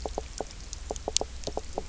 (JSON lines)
{"label": "biophony, knock croak", "recorder": "SoundTrap 300"}